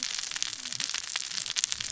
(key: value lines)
label: biophony, cascading saw
recorder: SoundTrap 600 or HydroMoth